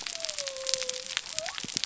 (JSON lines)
{"label": "biophony", "recorder": "SoundTrap 300"}